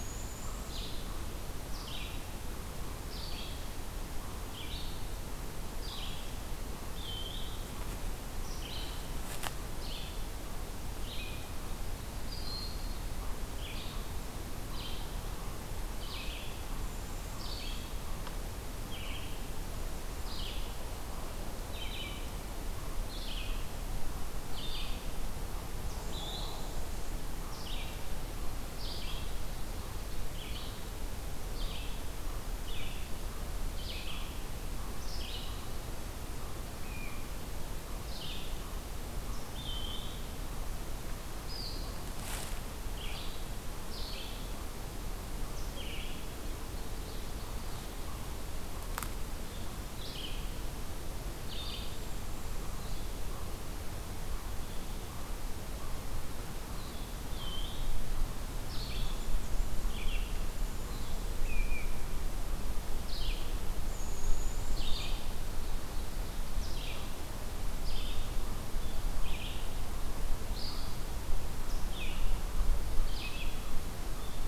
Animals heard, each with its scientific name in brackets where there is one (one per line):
Northern Parula (Setophaga americana)
Red-eyed Vireo (Vireo olivaceus)
Ovenbird (Seiurus aurocapilla)
Eastern Chipmunk (Tamias striatus)